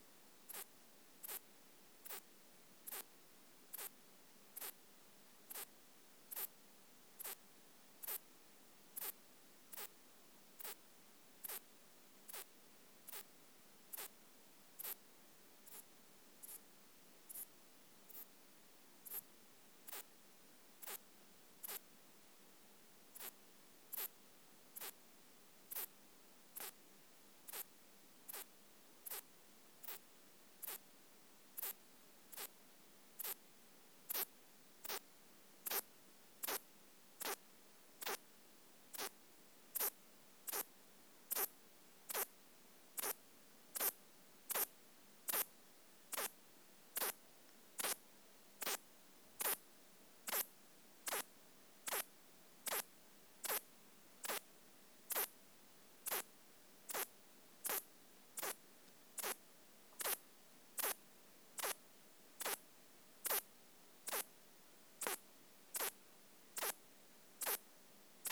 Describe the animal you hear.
Ephippiger ephippiger, an orthopteran